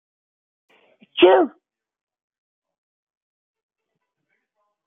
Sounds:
Sneeze